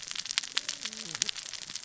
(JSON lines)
{"label": "biophony, cascading saw", "recorder": "SoundTrap 600 or HydroMoth"}